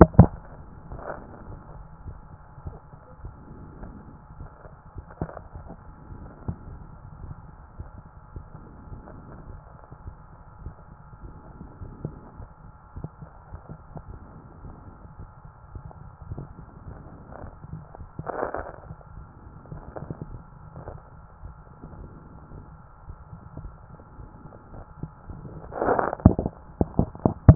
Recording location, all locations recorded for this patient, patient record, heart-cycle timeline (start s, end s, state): tricuspid valve (TV)
pulmonary valve (PV)+tricuspid valve (TV)
#Age: Child
#Sex: Male
#Height: 163.0 cm
#Weight: 80.6 kg
#Pregnancy status: False
#Murmur: Absent
#Murmur locations: nan
#Most audible location: nan
#Systolic murmur timing: nan
#Systolic murmur shape: nan
#Systolic murmur grading: nan
#Systolic murmur pitch: nan
#Systolic murmur quality: nan
#Diastolic murmur timing: nan
#Diastolic murmur shape: nan
#Diastolic murmur grading: nan
#Diastolic murmur pitch: nan
#Diastolic murmur quality: nan
#Outcome: Normal
#Campaign: 2014 screening campaign
0.00	0.82	unannotated
0.82	0.90	diastole
0.90	1.02	S1
1.02	1.18	systole
1.18	1.28	S2
1.28	1.48	diastole
1.48	1.60	S1
1.60	1.76	systole
1.76	1.84	S2
1.84	2.06	diastole
2.06	2.16	S1
2.16	2.30	systole
2.30	2.40	S2
2.40	2.64	diastole
2.64	2.76	S1
2.76	2.92	systole
2.92	3.00	S2
3.00	3.22	diastole
3.22	3.34	S1
3.34	3.50	systole
3.50	3.60	S2
3.60	3.82	diastole
3.82	3.94	S1
3.94	4.10	systole
4.10	4.18	S2
4.18	4.38	diastole
4.38	4.50	S1
4.50	4.66	systole
4.66	4.76	S2
4.76	4.96	diastole
4.96	5.06	S1
5.06	5.20	systole
5.20	5.30	S2
5.30	5.56	diastole
5.56	5.66	S1
5.66	5.86	systole
5.86	5.94	S2
5.94	6.16	diastole
6.16	27.55	unannotated